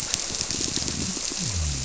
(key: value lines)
label: biophony
recorder: SoundTrap 300